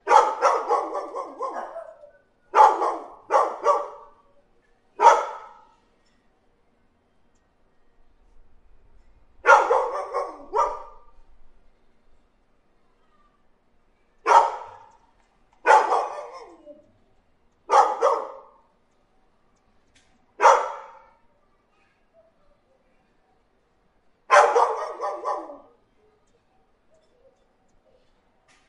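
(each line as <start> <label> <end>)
0.1 A dog barks loudly and repeatedly. 4.0
4.9 A dog barks loudly. 5.3
9.3 A dog barks outdoors. 11.0
14.1 A dog barks loudly once. 15.0
15.6 A dog barks twice. 16.4
17.5 Dogs barking in different tones. 18.6
20.2 A dog barks once. 21.0
24.1 Dog barks repeatedly and then fades away. 26.0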